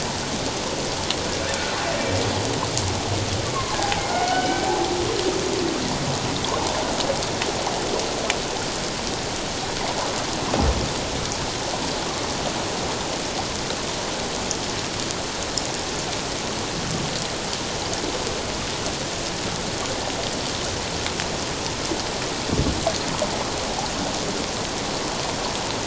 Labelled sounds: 3.5	4.7	humpback whale, 0.78 to 3.1 kHz

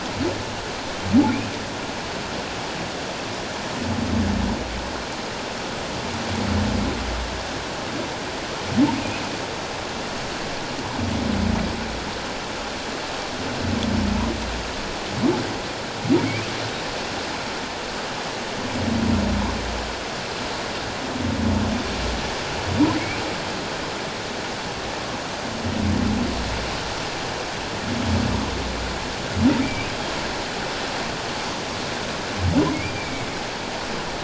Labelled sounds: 9.0	9.2	humpback whale, 2.4 to 2.7 kHz
29.6	29.9	humpback whale, 2.1 to 2.6 kHz
32.7	33.3	humpback whale, 2.1 to 2.4 kHz

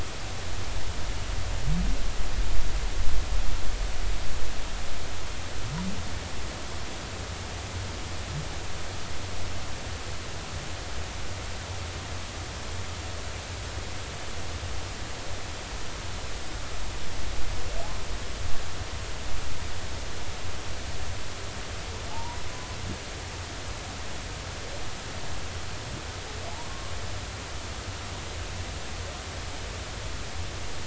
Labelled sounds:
22.1	22.4	humpback whale, 0.80 to 1.0 kHz

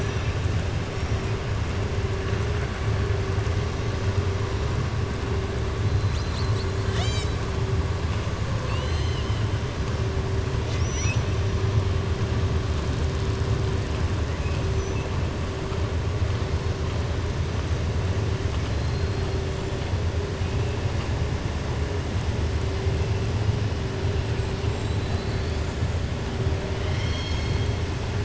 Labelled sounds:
8.6	9.4	killer whale, southern resident, 1.9 to 7.8 kHz
18.5	19.3	killer whale, southern resident, 2.3 to 4.3 kHz
26.7	27.7	killer whale, southern resident, 1.9 to 6.5 kHz

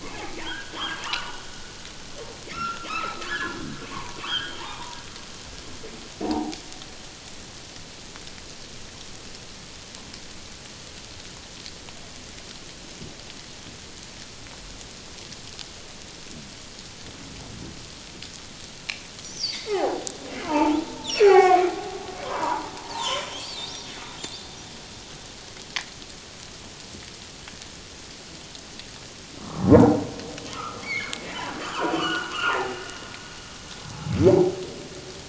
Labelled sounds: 0.0	1.4	humpback whale, 0.78 to 3.3 kHz
2.5	3.6	humpback whale, 0.97 to 4.2 kHz
3.9	5.0	humpback whale, 0.78 to 3.5 kHz
6.2	6.6	humpback whale, 0.78 to 1.0 kHz
19.3	20.1	humpback whale, 0.78 to 5.8 kHz
20.4	23.3	humpback whale, 0.78 to 5.9 kHz
23.6	23.9	humpback whale, 3.5 to 3.8 kHz
29.4	30.0	humpback whale, 0.78 to 1.4 kHz
30.5	31.2	humpback whale, 1.1 to 2.4 kHz
31.6	32.8	humpback whale, 0.78 to 3.2 kHz

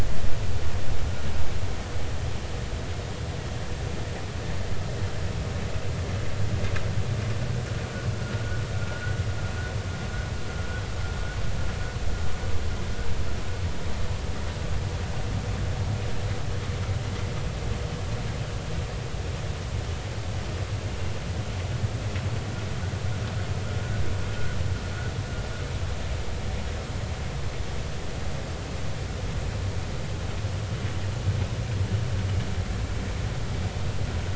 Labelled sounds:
8.2	9.0	vessel noise, 1.3 to 1.5 kHz

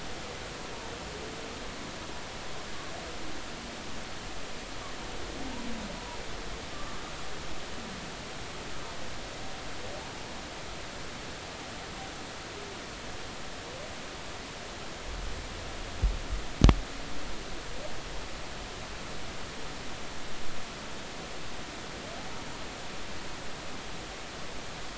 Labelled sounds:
6.7	7.0	humpback whale, 1.0 to 1.2 kHz

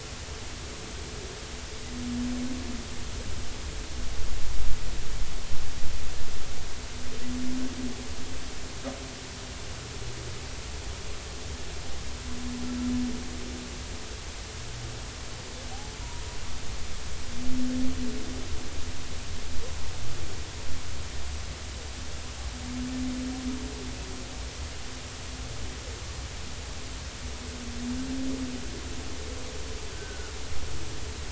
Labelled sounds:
29.9	30.3	humpback whale, 1.4 to 1.6 kHz

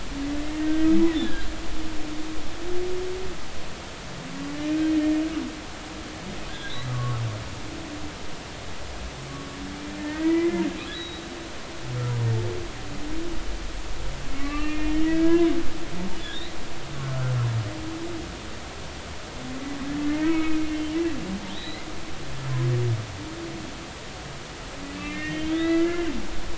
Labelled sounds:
0.6	1.5	humpback whale, 1.5 to 3.6 kHz
6.5	7.2	humpback whale, 1.0 to 4.1 kHz
10.0	11.2	humpback whale, 0.93 to 4.0 kHz
14.3	15.5	humpback whale, 0.96 to 2.8 kHz
17.0	17.3	humpback whale, 1.3 to 1.5 kHz
20.0	20.6	humpback whale, 1.2 to 2.3 kHz
21.5	21.9	humpback whale, 1.7 to 4.2 kHz
24.9	26.1	humpback whale, 1.3 to 4.1 kHz

